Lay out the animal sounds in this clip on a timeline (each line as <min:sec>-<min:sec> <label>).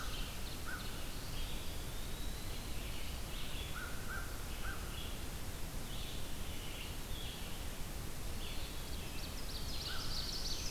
0:00.0-0:01.2 American Crow (Corvus brachyrhynchos)
0:00.0-0:01.3 Ovenbird (Seiurus aurocapilla)
0:00.0-0:10.7 Red-eyed Vireo (Vireo olivaceus)
0:01.0-0:02.7 Eastern Wood-Pewee (Contopus virens)
0:03.2-0:05.3 American Crow (Corvus brachyrhynchos)
0:08.1-0:09.5 Eastern Wood-Pewee (Contopus virens)
0:08.5-0:10.7 Ovenbird (Seiurus aurocapilla)
0:08.7-0:10.7 Black-throated Blue Warbler (Setophaga caerulescens)
0:09.6-0:10.4 American Crow (Corvus brachyrhynchos)